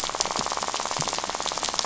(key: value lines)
label: biophony, rattle
recorder: SoundTrap 500